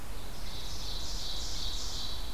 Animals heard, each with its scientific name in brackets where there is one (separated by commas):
Chipping Sparrow (Spizella passerina), Ovenbird (Seiurus aurocapilla)